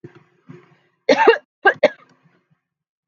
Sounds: Cough